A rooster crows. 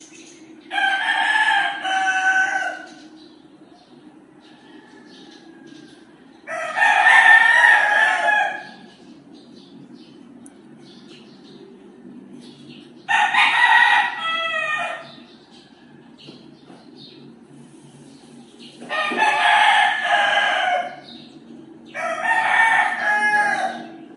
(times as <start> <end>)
0.7 2.9, 6.5 8.7, 13.1 15.0, 18.9 21.1, 21.9 24.1